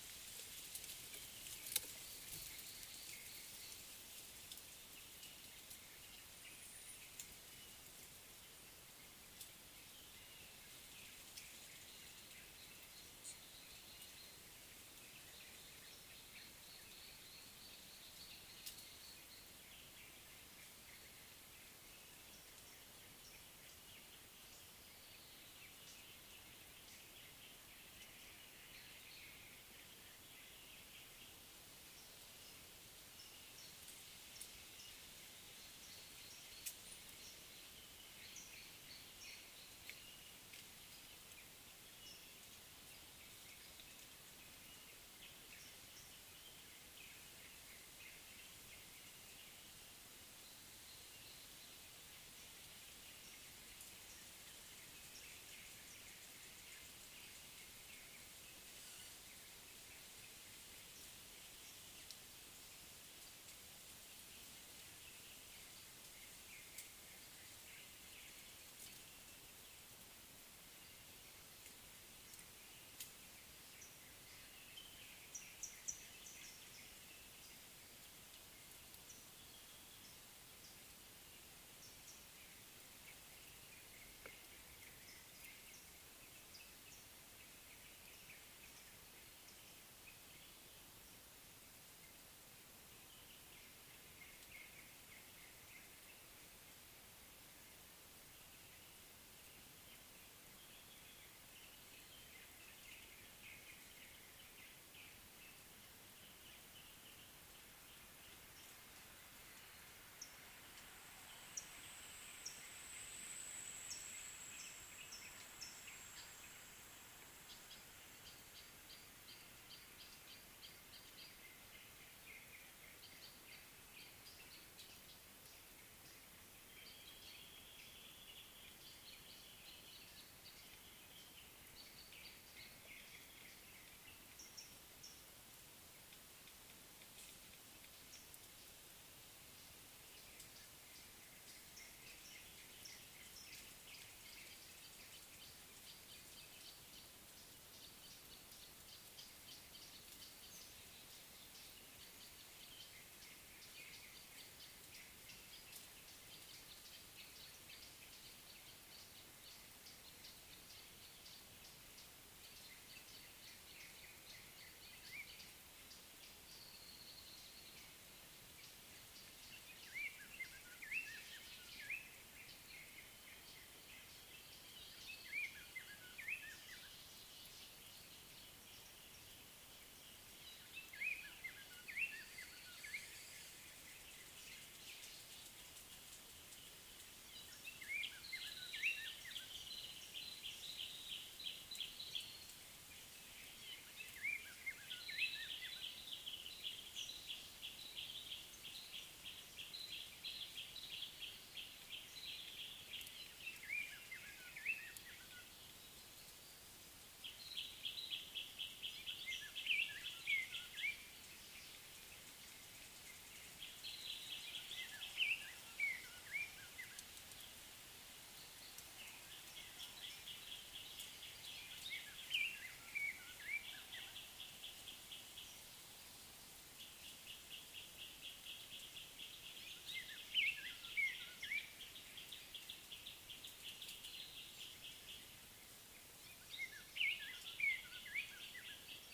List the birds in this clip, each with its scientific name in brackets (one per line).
Cape Robin-Chat (Cossypha caffra)
Gray Apalis (Apalis cinerea)